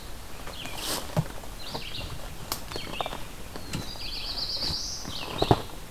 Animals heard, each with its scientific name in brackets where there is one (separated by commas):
Red-eyed Vireo (Vireo olivaceus), Black-throated Blue Warbler (Setophaga caerulescens)